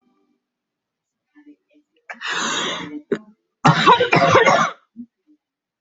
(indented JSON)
{
  "expert_labels": [
    {
      "quality": "ok",
      "cough_type": "dry",
      "dyspnea": false,
      "wheezing": false,
      "stridor": false,
      "choking": false,
      "congestion": false,
      "nothing": true,
      "diagnosis": "upper respiratory tract infection",
      "severity": "mild"
    }
  ],
  "age": 30,
  "gender": "female",
  "respiratory_condition": false,
  "fever_muscle_pain": false,
  "status": "symptomatic"
}